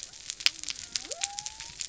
{"label": "biophony", "recorder": "SoundTrap 300"}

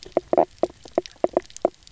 {"label": "biophony, knock croak", "recorder": "SoundTrap 300"}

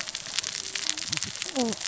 {"label": "biophony, cascading saw", "recorder": "SoundTrap 600 or HydroMoth"}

